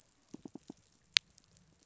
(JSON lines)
{"label": "biophony, pulse", "recorder": "SoundTrap 500"}